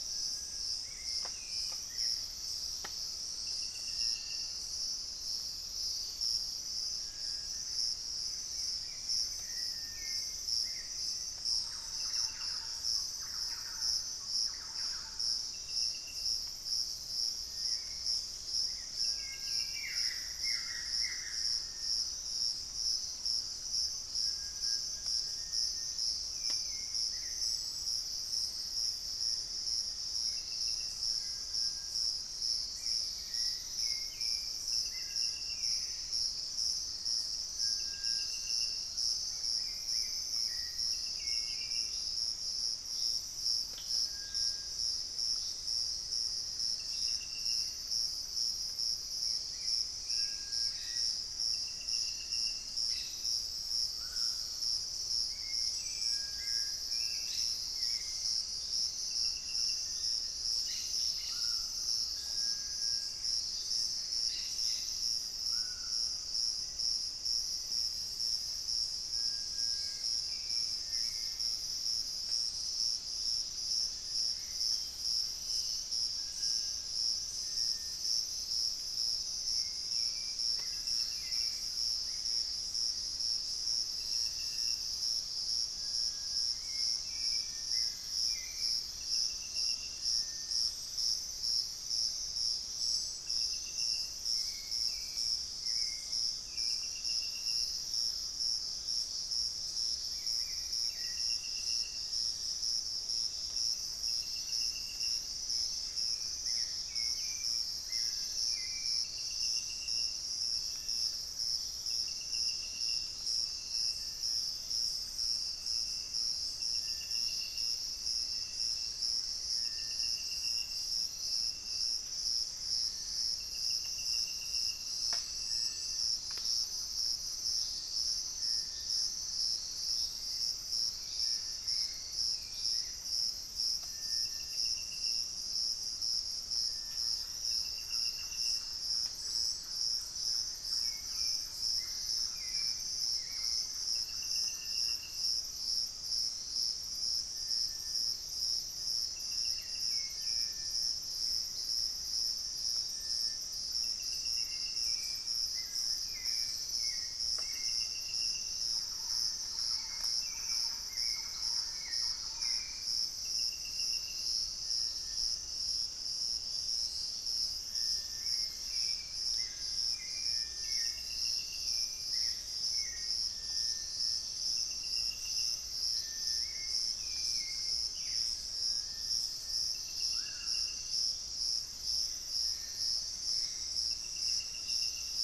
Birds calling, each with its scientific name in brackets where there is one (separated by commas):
Black-spotted Bare-eye (Phlegopsis nigromaculata), Little Tinamou (Crypturellus soui), Gray Antbird (Cercomacra cinerascens), unidentified bird, Collared Trogon (Trogon collaris), Cinereous Tinamou (Crypturellus cinereus), Hauxwell's Thrush (Turdus hauxwelli), Screaming Piha (Lipaugus vociferans), Black-faced Antthrush (Formicarius analis), Thrush-like Wren (Campylorhynchus turdinus)